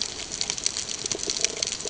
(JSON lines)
{"label": "ambient", "recorder": "HydroMoth"}